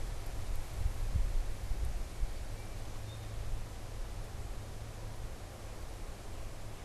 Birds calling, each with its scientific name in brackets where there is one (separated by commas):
Song Sparrow (Melospiza melodia)